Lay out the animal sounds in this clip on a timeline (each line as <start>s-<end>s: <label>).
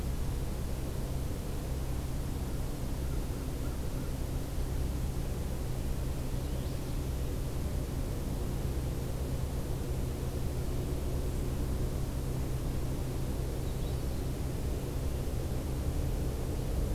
6.1s-7.0s: Magnolia Warbler (Setophaga magnolia)
13.4s-14.3s: Magnolia Warbler (Setophaga magnolia)